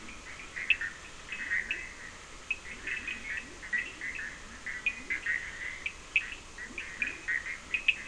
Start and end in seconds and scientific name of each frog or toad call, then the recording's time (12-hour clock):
0.0	5.5	Leptodactylus latrans
0.0	8.0	Boana bischoffi
0.0	8.0	Sphaenorhynchus surdus
6.6	8.0	Leptodactylus latrans
3:00am